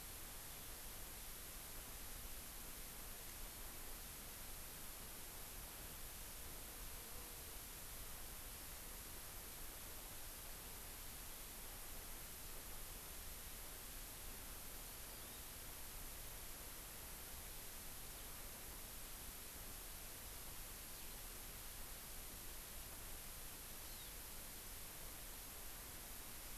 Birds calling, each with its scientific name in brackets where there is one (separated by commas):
Eurasian Skylark (Alauda arvensis)